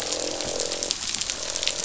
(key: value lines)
label: biophony, croak
recorder: SoundTrap 500